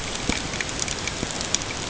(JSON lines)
{"label": "ambient", "recorder": "HydroMoth"}